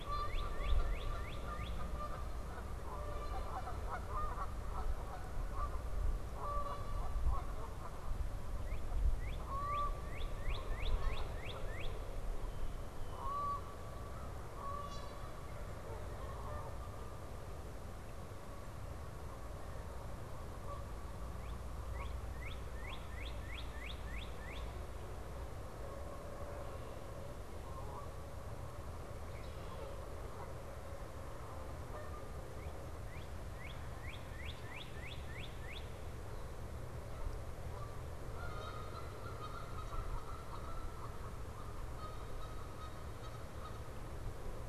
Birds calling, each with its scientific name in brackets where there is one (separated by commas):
Canada Goose (Branta canadensis), Northern Cardinal (Cardinalis cardinalis)